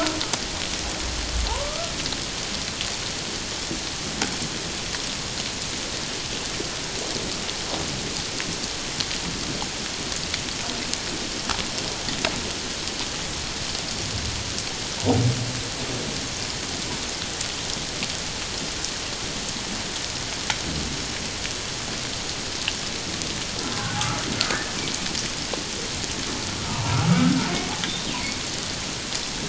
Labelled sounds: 1.5	1.9	humpback whale, 0.78 to 1.4 kHz
23.7	24.0	humpback whale, 1.4 to 1.6 kHz
26.7	27.5	humpback whale, 0.88 to 1.6 kHz

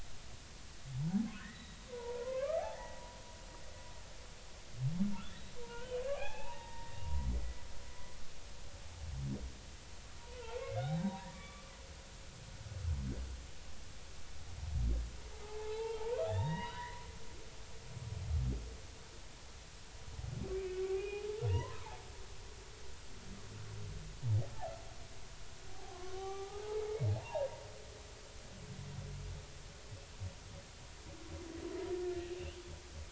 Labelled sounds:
0.9	3.0	humpback whale, 0.80 to 4.0 kHz
5.6	7.0	humpback whale, 0.80 to 3.8 kHz
7.4	7.6	humpback whale, 1.9 to 2.0 kHz
10.3	11.7	humpback whale, 0.90 to 4.0 kHz
15.4	17.1	humpback whale, 0.80 to 4.9 kHz
20.5	22.0	humpback whale, 0.80 to 2.9 kHz
25.7	26.8	humpback whale, 0.80 to 1.3 kHz
27.2	27.5	humpback whale, 0.80 to 1.1 kHz

